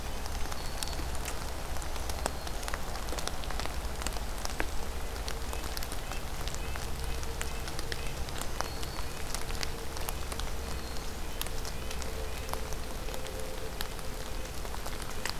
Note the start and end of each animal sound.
[0.00, 1.17] Black-throated Green Warbler (Setophaga virens)
[1.57, 2.76] Black-throated Green Warbler (Setophaga virens)
[5.40, 14.02] Red-breasted Nuthatch (Sitta canadensis)
[8.02, 9.30] Black-throated Green Warbler (Setophaga virens)

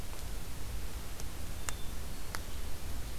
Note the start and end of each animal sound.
[1.50, 2.38] Hermit Thrush (Catharus guttatus)

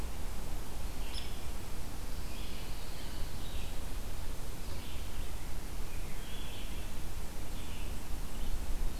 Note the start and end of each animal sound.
[0.00, 8.99] Red-eyed Vireo (Vireo olivaceus)
[1.01, 1.34] Hairy Woodpecker (Dryobates villosus)
[1.94, 3.48] Pine Warbler (Setophaga pinus)

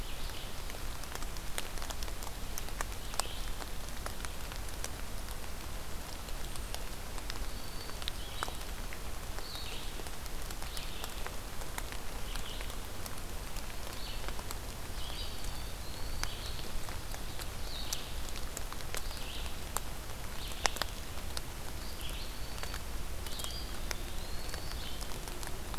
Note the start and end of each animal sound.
[0.00, 24.97] Red-eyed Vireo (Vireo olivaceus)
[7.04, 8.14] Black-throated Green Warbler (Setophaga virens)
[14.90, 16.41] Eastern Wood-Pewee (Contopus virens)
[21.54, 23.07] Black-throated Green Warbler (Setophaga virens)
[23.38, 24.74] Eastern Wood-Pewee (Contopus virens)

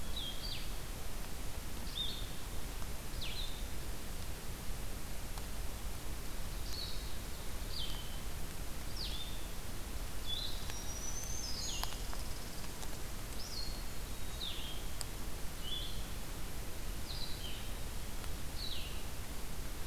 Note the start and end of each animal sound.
[0.00, 19.86] Blue-headed Vireo (Vireo solitarius)
[10.04, 13.41] Red Squirrel (Tamiasciurus hudsonicus)
[10.56, 11.90] Black-throated Green Warbler (Setophaga virens)

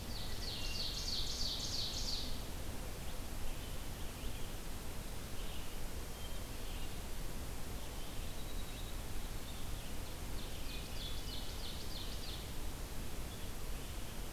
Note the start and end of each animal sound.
[0.00, 2.44] Ovenbird (Seiurus aurocapilla)
[0.00, 14.32] Red-eyed Vireo (Vireo olivaceus)
[0.44, 1.25] Wood Thrush (Hylocichla mustelina)
[6.07, 6.55] Wood Thrush (Hylocichla mustelina)
[7.88, 9.05] Winter Wren (Troglodytes hiemalis)
[9.70, 12.55] Ovenbird (Seiurus aurocapilla)
[10.62, 11.49] Wood Thrush (Hylocichla mustelina)

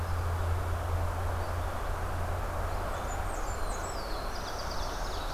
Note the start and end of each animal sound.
[0.00, 5.33] Red-eyed Vireo (Vireo olivaceus)
[2.53, 4.00] Blackburnian Warbler (Setophaga fusca)
[3.10, 5.33] Black-throated Blue Warbler (Setophaga caerulescens)
[4.36, 5.33] Ovenbird (Seiurus aurocapilla)

